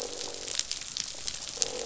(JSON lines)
{"label": "biophony, croak", "recorder": "SoundTrap 500"}